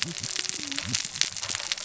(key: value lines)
label: biophony, cascading saw
recorder: SoundTrap 600 or HydroMoth